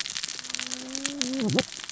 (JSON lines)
{"label": "biophony, cascading saw", "recorder": "SoundTrap 600 or HydroMoth"}